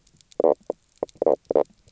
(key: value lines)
label: biophony, knock croak
recorder: SoundTrap 300